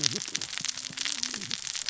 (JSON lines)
{"label": "biophony, cascading saw", "recorder": "SoundTrap 600 or HydroMoth"}